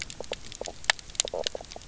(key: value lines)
label: biophony, knock croak
recorder: SoundTrap 300